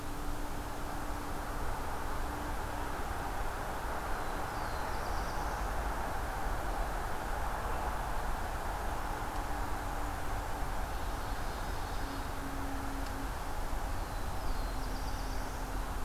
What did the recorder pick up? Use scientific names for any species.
Setophaga caerulescens, Seiurus aurocapilla